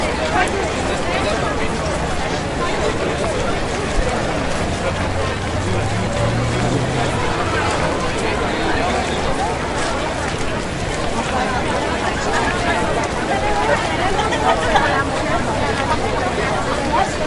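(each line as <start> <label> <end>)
0.0 A large crowd is walking and chatting outdoors. 17.3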